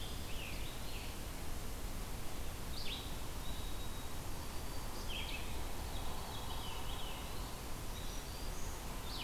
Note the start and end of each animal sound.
0.0s-1.2s: Eastern Wood-Pewee (Contopus virens)
0.0s-1.4s: Scarlet Tanager (Piranga olivacea)
0.0s-9.2s: Red-eyed Vireo (Vireo olivaceus)
3.4s-5.3s: White-throated Sparrow (Zonotrichia albicollis)
5.8s-7.4s: Veery (Catharus fuscescens)
7.6s-8.8s: Black-throated Green Warbler (Setophaga virens)

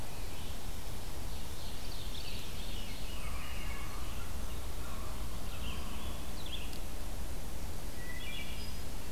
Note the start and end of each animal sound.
0.0s-9.1s: Red-eyed Vireo (Vireo olivaceus)
1.1s-3.2s: Ovenbird (Seiurus aurocapilla)
2.4s-4.2s: Veery (Catharus fuscescens)
3.1s-6.8s: Common Raven (Corvus corax)
7.8s-8.9s: Wood Thrush (Hylocichla mustelina)

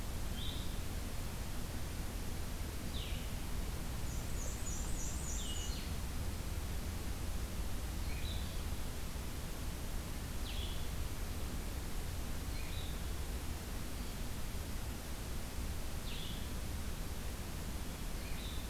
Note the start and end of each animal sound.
0.2s-12.9s: Blue-headed Vireo (Vireo solitarius)
4.0s-5.8s: Black-and-white Warbler (Mniotilta varia)
15.9s-18.7s: Blue-headed Vireo (Vireo solitarius)

